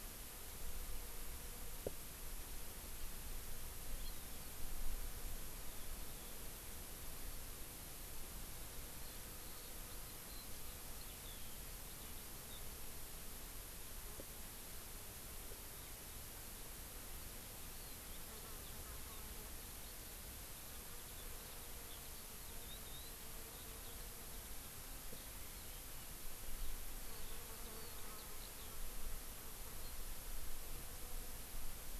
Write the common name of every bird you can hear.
Hawaii Amakihi, Eurasian Skylark